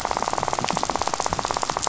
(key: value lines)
label: biophony, rattle
recorder: SoundTrap 500